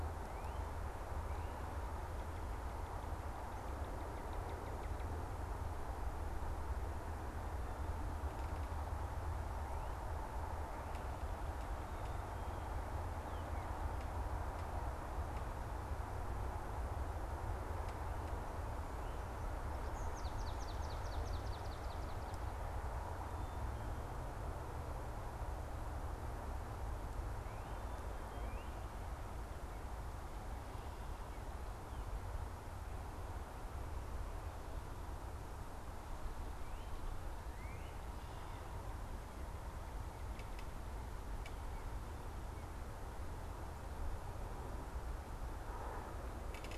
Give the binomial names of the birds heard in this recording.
Melospiza georgiana, Cardinalis cardinalis